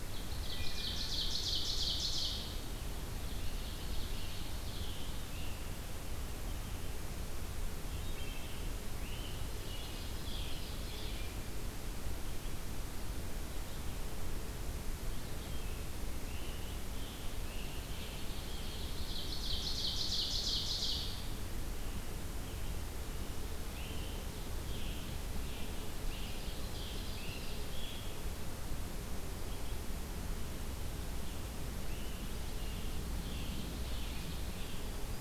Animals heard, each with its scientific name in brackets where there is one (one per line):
Wood Thrush (Hylocichla mustelina)
Ovenbird (Seiurus aurocapilla)
Scarlet Tanager (Piranga olivacea)